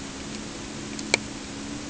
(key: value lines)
label: anthrophony, boat engine
recorder: HydroMoth